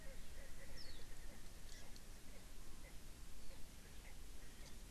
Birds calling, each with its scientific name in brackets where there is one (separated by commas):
Warbling White-eye (Zosterops japonicus), Erckel's Francolin (Pternistis erckelii)